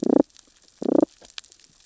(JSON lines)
{"label": "biophony, damselfish", "recorder": "SoundTrap 600 or HydroMoth"}